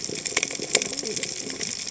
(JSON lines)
{"label": "biophony, cascading saw", "recorder": "HydroMoth"}